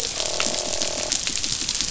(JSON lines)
{"label": "biophony", "recorder": "SoundTrap 500"}
{"label": "biophony, croak", "recorder": "SoundTrap 500"}